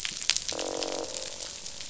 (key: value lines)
label: biophony, croak
recorder: SoundTrap 500